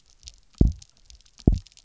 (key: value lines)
label: biophony, double pulse
recorder: SoundTrap 300